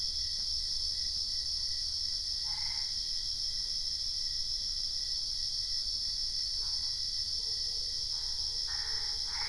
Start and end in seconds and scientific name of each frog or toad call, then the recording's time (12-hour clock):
2.4	3.1	Boana albopunctata
8.1	9.4	Boana albopunctata
10:15pm